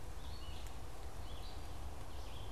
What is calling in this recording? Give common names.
Red-eyed Vireo